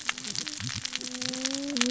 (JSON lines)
{"label": "biophony, cascading saw", "recorder": "SoundTrap 600 or HydroMoth"}